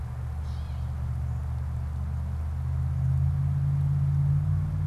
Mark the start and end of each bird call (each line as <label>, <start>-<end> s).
Gray Catbird (Dumetella carolinensis), 0.3-0.9 s